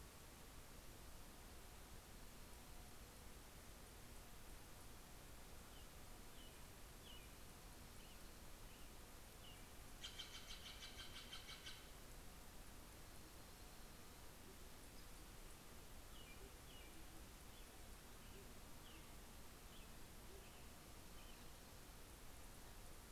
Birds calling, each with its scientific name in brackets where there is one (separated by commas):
Band-tailed Pigeon (Patagioenas fasciata), Steller's Jay (Cyanocitta stelleri), American Robin (Turdus migratorius)